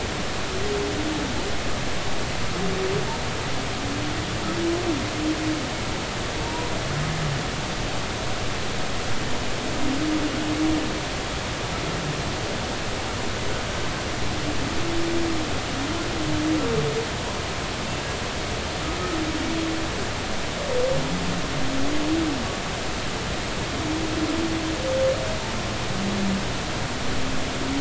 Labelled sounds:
6.4	6.7	humpback whale, 0.90 to 1.0 kHz

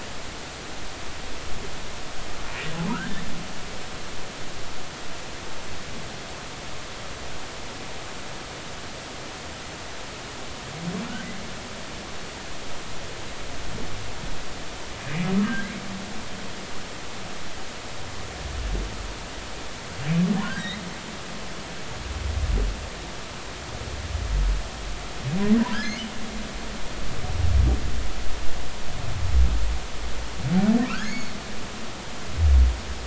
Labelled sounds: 2.9	3.2	humpback whale, 1.2 to 2.0 kHz
15.4	15.7	humpback whale, 1.5 to 1.7 kHz
20.4	20.8	humpback whale, 1.4 to 4.1 kHz
25.7	26.0	humpback whale, 1.3 to 1.8 kHz
30.9	31.3	humpback whale, 1.2 to 6.8 kHz

